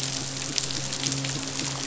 {"label": "biophony", "recorder": "SoundTrap 500"}
{"label": "biophony, midshipman", "recorder": "SoundTrap 500"}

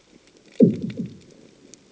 {"label": "anthrophony, bomb", "recorder": "HydroMoth"}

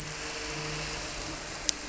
{"label": "anthrophony, boat engine", "recorder": "SoundTrap 300"}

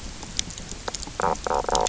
{"label": "biophony, knock croak", "recorder": "SoundTrap 300"}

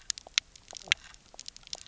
{"label": "biophony, knock croak", "recorder": "SoundTrap 300"}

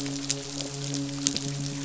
{"label": "biophony, midshipman", "recorder": "SoundTrap 500"}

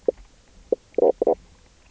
{"label": "biophony, knock croak", "recorder": "SoundTrap 300"}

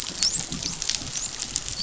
{"label": "biophony, dolphin", "recorder": "SoundTrap 500"}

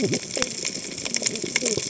{"label": "biophony, cascading saw", "recorder": "HydroMoth"}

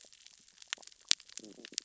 {"label": "biophony, stridulation", "recorder": "SoundTrap 600 or HydroMoth"}
{"label": "biophony, sea urchins (Echinidae)", "recorder": "SoundTrap 600 or HydroMoth"}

